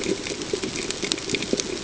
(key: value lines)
label: ambient
recorder: HydroMoth